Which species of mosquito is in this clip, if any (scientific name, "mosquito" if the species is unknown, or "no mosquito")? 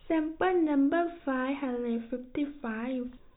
no mosquito